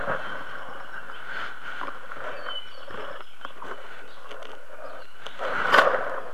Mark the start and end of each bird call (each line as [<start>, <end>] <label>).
[2.30, 3.50] Apapane (Himatione sanguinea)